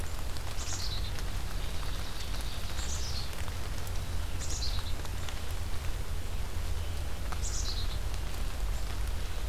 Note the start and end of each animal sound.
0.5s-1.3s: Black-capped Chickadee (Poecile atricapillus)
1.4s-3.2s: Ovenbird (Seiurus aurocapilla)
2.6s-3.3s: Black-capped Chickadee (Poecile atricapillus)
4.3s-5.1s: Black-capped Chickadee (Poecile atricapillus)
7.0s-8.1s: Black-capped Chickadee (Poecile atricapillus)

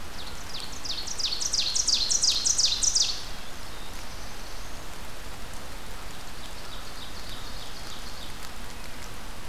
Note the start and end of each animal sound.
0.0s-3.2s: Ovenbird (Seiurus aurocapilla)
3.1s-4.0s: Black-capped Chickadee (Poecile atricapillus)
3.2s-4.9s: Black-throated Blue Warbler (Setophaga caerulescens)
6.0s-8.4s: Ovenbird (Seiurus aurocapilla)

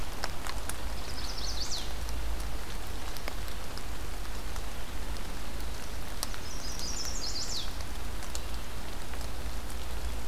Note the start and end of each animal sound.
0.8s-2.0s: Chestnut-sided Warbler (Setophaga pensylvanica)
6.3s-7.9s: Chestnut-sided Warbler (Setophaga pensylvanica)

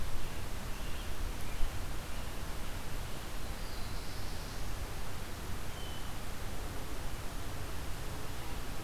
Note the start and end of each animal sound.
0.0s-2.8s: Scarlet Tanager (Piranga olivacea)
3.2s-4.7s: Black-throated Blue Warbler (Setophaga caerulescens)

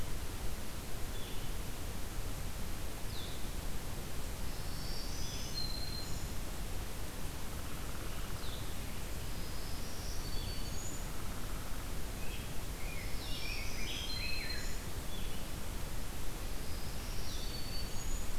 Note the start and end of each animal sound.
0.0s-4.0s: Blue-headed Vireo (Vireo solitarius)
4.4s-6.3s: Black-throated Green Warbler (Setophaga virens)
7.2s-8.5s: Downy Woodpecker (Dryobates pubescens)
9.2s-11.1s: Black-throated Green Warbler (Setophaga virens)
10.9s-12.0s: Downy Woodpecker (Dryobates pubescens)
12.1s-14.6s: Rose-breasted Grosbeak (Pheucticus ludovicianus)
12.9s-14.9s: Black-throated Green Warbler (Setophaga virens)
16.5s-18.4s: Black-throated Green Warbler (Setophaga virens)

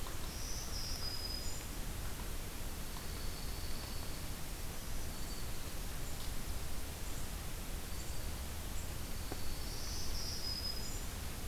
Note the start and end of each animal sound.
0.1s-1.9s: Black-throated Green Warbler (Setophaga virens)
2.4s-4.4s: Broad-winged Hawk (Buteo platypterus)
4.6s-5.7s: Black-throated Green Warbler (Setophaga virens)
7.6s-8.4s: Black-throated Green Warbler (Setophaga virens)
9.4s-11.2s: Black-throated Green Warbler (Setophaga virens)

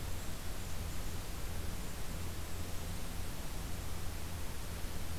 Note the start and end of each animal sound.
2.0s-3.7s: Golden-crowned Kinglet (Regulus satrapa)

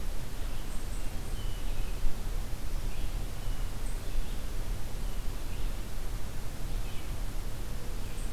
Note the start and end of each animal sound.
0.0s-8.3s: Red-eyed Vireo (Vireo olivaceus)
1.3s-1.9s: Hermit Thrush (Catharus guttatus)
3.3s-3.7s: Hermit Thrush (Catharus guttatus)

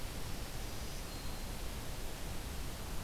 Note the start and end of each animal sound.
0.0s-1.5s: Black-throated Green Warbler (Setophaga virens)

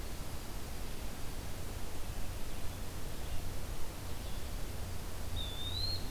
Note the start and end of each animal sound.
5.3s-6.1s: Eastern Wood-Pewee (Contopus virens)

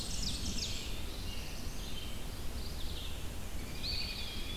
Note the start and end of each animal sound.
0.0s-1.1s: Ovenbird (Seiurus aurocapilla)
0.0s-1.2s: Black-and-white Warbler (Mniotilta varia)
0.0s-4.6s: Red-eyed Vireo (Vireo olivaceus)
0.8s-1.9s: Black-throated Blue Warbler (Setophaga caerulescens)
2.2s-3.3s: Mourning Warbler (Geothlypis philadelphia)
3.4s-4.6s: American Robin (Turdus migratorius)
3.8s-4.6s: Eastern Wood-Pewee (Contopus virens)

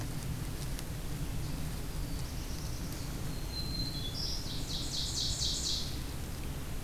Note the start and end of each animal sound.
1.6s-3.2s: Black-throated Blue Warbler (Setophaga caerulescens)
3.1s-4.5s: Black-throated Green Warbler (Setophaga virens)
4.3s-6.1s: Ovenbird (Seiurus aurocapilla)

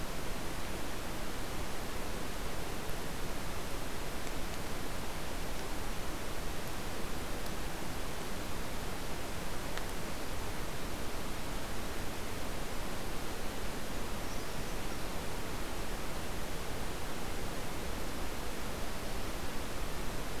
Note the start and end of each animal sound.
13.9s-15.1s: Brown Creeper (Certhia americana)

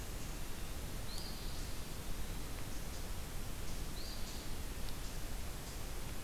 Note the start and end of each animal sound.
1.0s-2.0s: Eastern Phoebe (Sayornis phoebe)
1.6s-2.7s: Eastern Wood-Pewee (Contopus virens)
3.8s-4.6s: Eastern Phoebe (Sayornis phoebe)

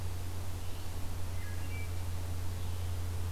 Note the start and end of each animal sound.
1.2s-2.0s: Wood Thrush (Hylocichla mustelina)

